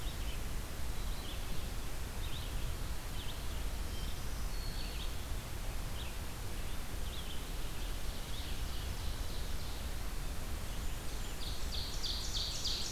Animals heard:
Ovenbird (Seiurus aurocapilla)
Black-throated Green Warbler (Setophaga virens)
Red-eyed Vireo (Vireo olivaceus)
Blackburnian Warbler (Setophaga fusca)

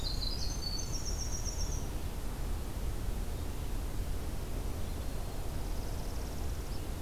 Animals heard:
Winter Wren (Troglodytes hiemalis)
Northern Parula (Setophaga americana)

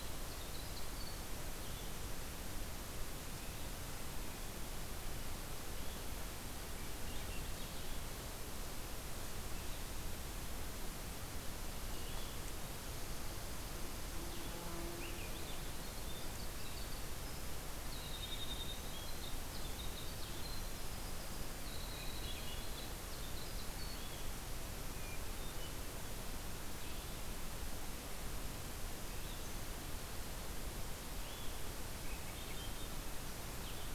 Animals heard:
Hermit Thrush (Catharus guttatus)
Swainson's Thrush (Catharus ustulatus)
Blue-headed Vireo (Vireo solitarius)
Winter Wren (Troglodytes hiemalis)
Eastern Wood-Pewee (Contopus virens)

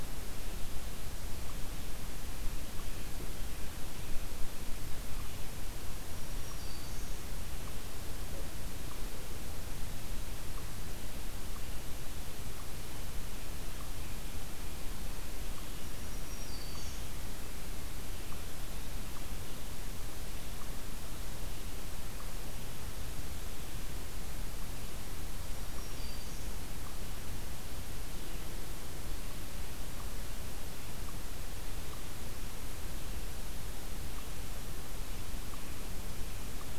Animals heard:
Black-throated Green Warbler (Setophaga virens)

